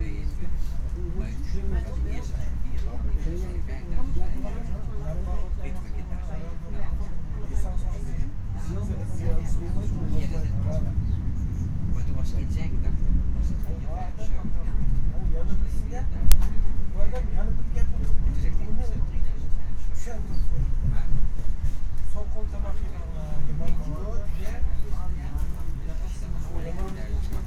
Are multiple people speaking?
yes